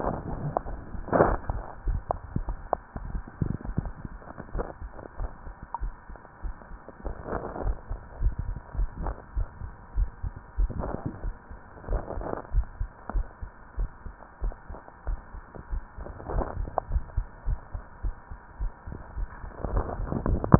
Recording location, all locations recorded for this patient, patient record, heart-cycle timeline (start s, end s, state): mitral valve (MV)
aortic valve (AV)+pulmonary valve (PV)+tricuspid valve (TV)+mitral valve (MV)
#Age: nan
#Sex: Female
#Height: nan
#Weight: nan
#Pregnancy status: True
#Murmur: Absent
#Murmur locations: nan
#Most audible location: nan
#Systolic murmur timing: nan
#Systolic murmur shape: nan
#Systolic murmur grading: nan
#Systolic murmur pitch: nan
#Systolic murmur quality: nan
#Diastolic murmur timing: nan
#Diastolic murmur shape: nan
#Diastolic murmur grading: nan
#Diastolic murmur pitch: nan
#Diastolic murmur quality: nan
#Outcome: Abnormal
#Campaign: 2015 screening campaign
0.00	4.51	unannotated
4.51	4.66	S1
4.66	4.82	systole
4.82	4.92	S2
4.92	5.18	diastole
5.18	5.32	S1
5.32	5.46	systole
5.46	5.54	S2
5.54	5.82	diastole
5.82	5.94	S1
5.94	6.10	systole
6.10	6.18	S2
6.18	6.44	diastole
6.44	6.54	S1
6.54	6.70	systole
6.70	6.78	S2
6.78	7.04	diastole
7.04	7.18	S1
7.18	7.30	systole
7.30	7.40	S2
7.40	7.62	diastole
7.62	7.78	S1
7.78	7.88	systole
7.88	7.98	S2
7.98	8.20	diastole
8.20	8.36	S1
8.36	8.46	systole
8.46	8.58	S2
8.58	8.78	diastole
8.78	8.90	S1
8.90	9.00	systole
9.00	9.14	S2
9.14	9.36	diastole
9.36	9.48	S1
9.48	9.62	systole
9.62	9.72	S2
9.72	9.96	diastole
9.96	10.10	S1
10.10	10.24	systole
10.24	10.34	S2
10.34	10.58	diastole
10.58	10.72	S1
10.72	10.88	systole
10.88	11.00	S2
11.00	11.22	diastole
11.22	11.36	S1
11.36	11.46	systole
11.46	11.58	S2
11.58	11.88	diastole
11.88	12.02	S1
12.02	12.15	systole
12.15	12.26	S2
12.26	12.52	diastole
12.52	12.68	S1
12.68	12.78	systole
12.78	12.90	S2
12.90	13.14	diastole
13.14	13.28	S1
13.28	13.40	systole
13.40	13.52	S2
13.52	13.78	diastole
13.78	13.90	S1
13.90	14.03	systole
14.03	14.14	S2
14.14	14.42	diastole
14.42	14.56	S1
14.56	14.66	systole
14.66	14.78	S2
14.78	15.06	diastole
15.06	15.20	S1
15.20	15.31	systole
15.31	15.42	S2
15.42	15.70	diastole
15.70	15.84	S1
15.84	15.95	systole
15.95	16.08	S2
16.08	16.32	diastole
16.32	16.46	S1
16.46	16.56	systole
16.56	16.68	S2
16.68	16.90	diastole
16.90	17.06	S1
17.06	17.16	systole
17.16	17.26	S2
17.26	17.46	diastole
17.46	17.60	S1
17.60	17.72	systole
17.72	17.82	S2
17.82	18.02	diastole
18.02	18.14	S1
18.14	18.28	systole
18.28	18.38	S2
18.38	18.60	diastole
18.60	18.72	S1
18.72	18.85	systole
18.85	18.94	S2
18.94	19.16	diastole
19.16	19.30	S1
19.30	19.42	systole
19.42	19.52	S2
19.52	19.72	diastole
19.72	19.86	S1
19.86	20.59	unannotated